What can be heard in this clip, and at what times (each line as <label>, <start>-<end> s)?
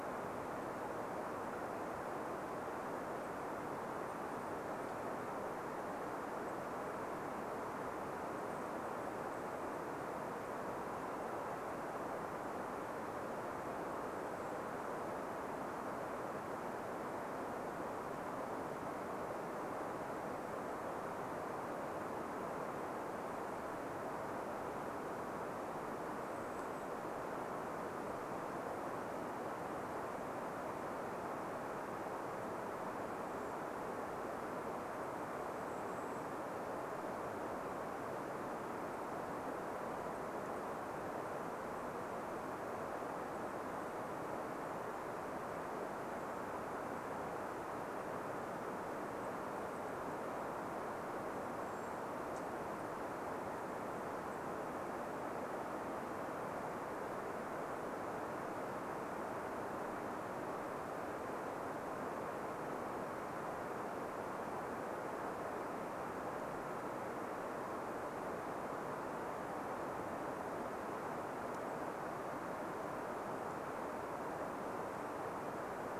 Golden-crowned Kinglet call, 4-12 s
Golden-crowned Kinglet call, 14-16 s
Golden-crowned Kinglet call, 20-24 s
Golden-crowned Kinglet call, 26-28 s
Golden-crowned Kinglet call, 32-44 s
Golden-crowned Kinglet call, 46-56 s
Golden-crowned Kinglet call, 72-74 s